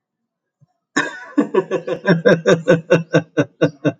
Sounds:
Laughter